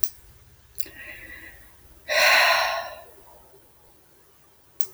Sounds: Sigh